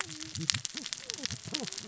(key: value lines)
label: biophony, cascading saw
recorder: SoundTrap 600 or HydroMoth